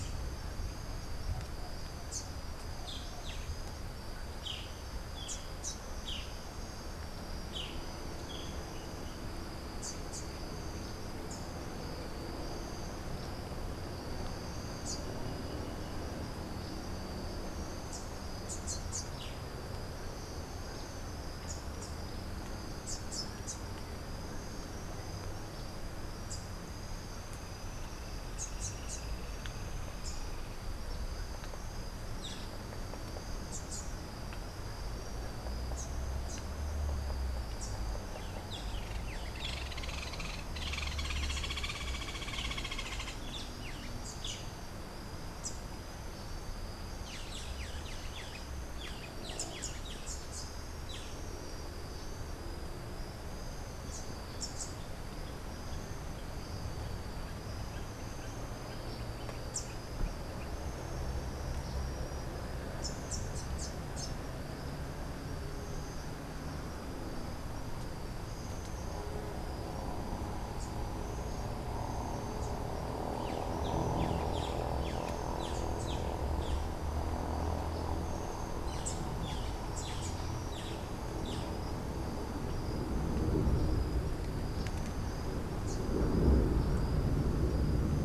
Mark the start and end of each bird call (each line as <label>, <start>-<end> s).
Rufous-capped Warbler (Basileuterus rufifrons), 0.3-15.2 s
Boat-billed Flycatcher (Megarynchus pitangua), 2.6-8.7 s
Rufous-capped Warbler (Basileuterus rufifrons), 17.7-30.2 s
Rufous-capped Warbler (Basileuterus rufifrons), 33.4-37.8 s
Hoffmann's Woodpecker (Melanerpes hoffmannii), 39.0-43.5 s
Rufous-capped Warbler (Basileuterus rufifrons), 44.0-45.6 s
Boat-billed Flycatcher (Megarynchus pitangua), 46.9-51.2 s
Rufous-capped Warbler (Basileuterus rufifrons), 49.0-59.8 s
Rufous-capped Warbler (Basileuterus rufifrons), 62.7-64.2 s
Boat-billed Flycatcher (Megarynchus pitangua), 73.3-76.7 s
Boat-billed Flycatcher (Megarynchus pitangua), 79.2-81.5 s